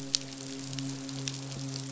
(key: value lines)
label: biophony, midshipman
recorder: SoundTrap 500